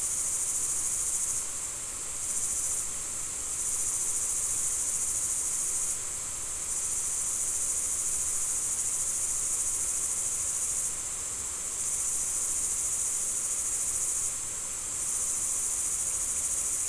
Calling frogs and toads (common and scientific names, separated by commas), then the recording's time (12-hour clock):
none
6:45pm